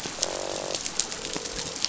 {"label": "biophony, croak", "recorder": "SoundTrap 500"}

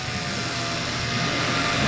{"label": "anthrophony, boat engine", "recorder": "SoundTrap 500"}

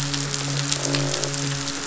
{"label": "biophony, croak", "recorder": "SoundTrap 500"}
{"label": "biophony, midshipman", "recorder": "SoundTrap 500"}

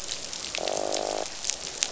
{"label": "biophony, croak", "recorder": "SoundTrap 500"}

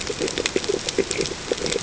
{"label": "ambient", "recorder": "HydroMoth"}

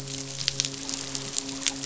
{"label": "biophony, midshipman", "recorder": "SoundTrap 500"}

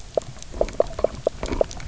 {"label": "biophony", "recorder": "SoundTrap 300"}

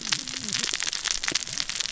{"label": "biophony, cascading saw", "recorder": "SoundTrap 600 or HydroMoth"}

